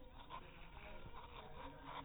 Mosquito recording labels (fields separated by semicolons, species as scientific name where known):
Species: mosquito; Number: one; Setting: cup